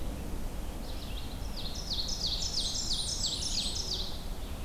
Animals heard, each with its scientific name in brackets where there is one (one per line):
Ovenbird (Seiurus aurocapilla)
Blackburnian Warbler (Setophaga fusca)
Red-eyed Vireo (Vireo olivaceus)